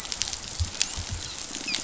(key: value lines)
label: biophony, dolphin
recorder: SoundTrap 500